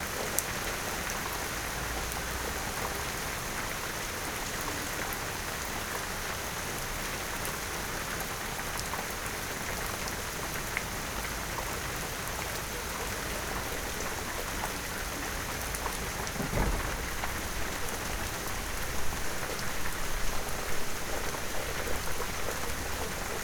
Is someone jet skiing?
no